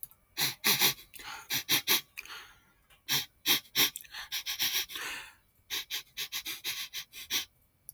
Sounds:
Sniff